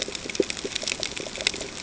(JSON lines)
{"label": "ambient", "recorder": "HydroMoth"}